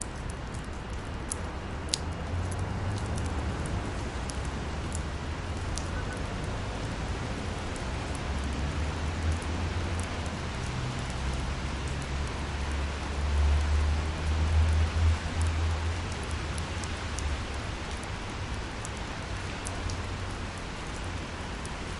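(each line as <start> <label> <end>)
0.0 Light continuous drizzle. 22.0
0.0 Traffic noise is heard in the distance. 22.0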